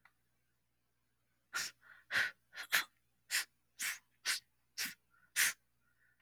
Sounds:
Sniff